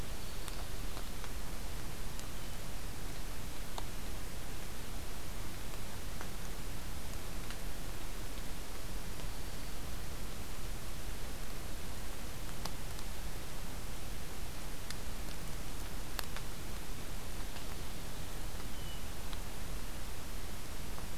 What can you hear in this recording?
Black-throated Green Warbler, Hermit Thrush